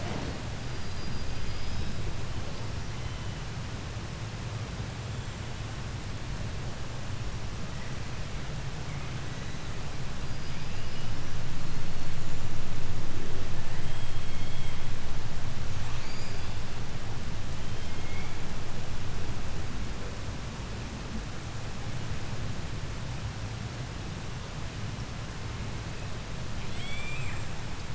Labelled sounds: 0.5	2.2	killer whale, 3.6 to 5.2 kHz
2.5	3.8	killer whale, 0.65 to 6.1 kHz
8.8	9.9	killer whale, 1.4 to 6.6 kHz
10.1	11.4	killer whale, southern resident, 1.8 to 7.1 kHz
11.5	12.6	killer whale, 3.8 to 8.0 kHz
13.3	15.1	killer whale, 1.3 to 8.0 kHz
15.7	16.7	killer whale, 0.40 to 8.0 kHz
17.4	18.5	killer whale, 1.8 to 7.1 kHz
26.3	27.9	killer whale, 0.95 to 8.0 kHz

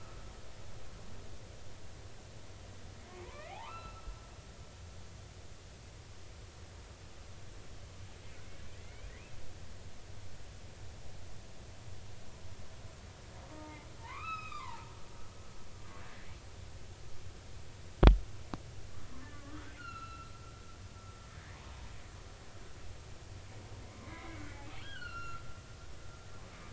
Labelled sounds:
3.2	4.1	humpback whale, 0.80 to 4.1 kHz
8.8	9.1	humpback whale, 1.9 to 2.5 kHz
13.5	14.9	humpback whale, 0.80 to 5.2 kHz
19.3	20.3	humpback whale, 1.1 to 4.3 kHz
21.3	21.6	humpback whale, 1.6 to 2.0 kHz
24.0	24.5	humpback whale, 2.0 to 2.3 kHz
24.8	25.4	humpback whale, 1.2 to 4.4 kHz

